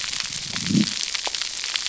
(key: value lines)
label: biophony
recorder: SoundTrap 300